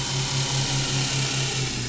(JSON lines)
{"label": "anthrophony, boat engine", "recorder": "SoundTrap 500"}